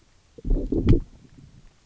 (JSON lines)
{"label": "biophony, low growl", "recorder": "SoundTrap 300"}